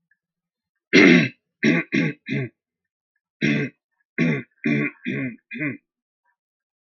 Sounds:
Throat clearing